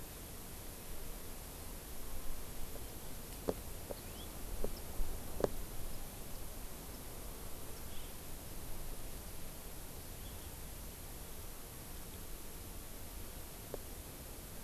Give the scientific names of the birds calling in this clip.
Haemorhous mexicanus, Buteo solitarius, Chlorodrepanis virens